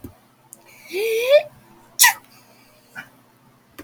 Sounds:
Sneeze